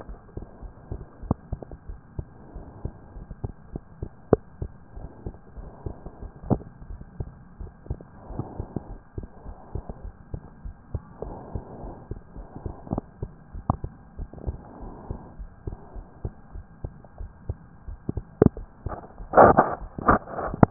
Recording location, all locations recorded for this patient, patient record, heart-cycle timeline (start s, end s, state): pulmonary valve (PV)
aortic valve (AV)+pulmonary valve (PV)+tricuspid valve (TV)+mitral valve (MV)
#Age: Child
#Sex: Female
#Height: 116.0 cm
#Weight: 30.4 kg
#Pregnancy status: False
#Murmur: Absent
#Murmur locations: nan
#Most audible location: nan
#Systolic murmur timing: nan
#Systolic murmur shape: nan
#Systolic murmur grading: nan
#Systolic murmur pitch: nan
#Systolic murmur quality: nan
#Diastolic murmur timing: nan
#Diastolic murmur shape: nan
#Diastolic murmur grading: nan
#Diastolic murmur pitch: nan
#Diastolic murmur quality: nan
#Outcome: Normal
#Campaign: 2015 screening campaign
0.00	10.02	unannotated
10.02	10.12	S1
10.12	10.32	systole
10.32	10.42	S2
10.42	10.64	diastole
10.64	10.76	S1
10.76	10.92	systole
10.92	11.02	S2
11.02	11.24	diastole
11.24	11.36	S1
11.36	11.50	systole
11.50	11.62	S2
11.62	11.82	diastole
11.82	11.96	S1
11.96	12.10	systole
12.10	12.18	S2
12.18	12.36	diastole
12.36	12.46	S1
12.46	12.63	systole
12.63	12.70	S2
12.70	12.90	diastole
12.90	13.04	S1
13.04	13.20	systole
13.20	13.34	S2
13.34	13.53	diastole
13.53	13.63	S1
13.63	13.81	systole
13.81	13.91	S2
13.91	14.18	diastole
14.18	14.30	S1
14.30	14.46	systole
14.46	14.60	S2
14.60	14.82	diastole
14.82	14.92	S1
14.92	15.06	systole
15.06	15.18	S2
15.18	15.38	diastole
15.38	15.50	S1
15.50	15.62	systole
15.62	15.74	S2
15.74	15.96	diastole
15.96	16.06	S1
16.06	16.20	systole
16.20	16.32	S2
16.32	16.54	diastole
16.54	16.66	S1
16.66	16.80	systole
16.80	16.94	S2
16.94	17.20	diastole
17.20	17.32	S1
17.32	17.48	systole
17.48	17.58	S2
17.58	17.86	diastole
17.86	18.00	S1
18.00	20.70	unannotated